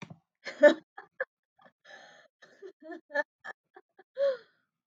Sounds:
Laughter